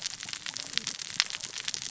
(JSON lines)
{"label": "biophony, cascading saw", "recorder": "SoundTrap 600 or HydroMoth"}